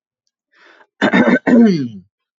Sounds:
Throat clearing